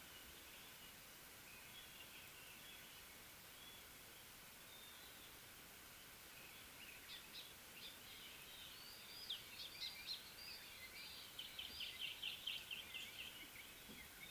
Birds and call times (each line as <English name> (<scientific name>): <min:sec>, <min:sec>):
Scarlet-chested Sunbird (Chalcomitra senegalensis): 0:09.6